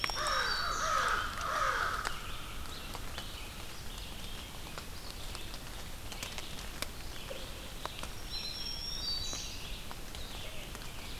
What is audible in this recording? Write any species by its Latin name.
Setophaga virens, Corvus brachyrhynchos, Vireo olivaceus, Contopus virens